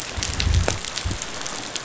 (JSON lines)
{"label": "biophony, growl", "recorder": "SoundTrap 500"}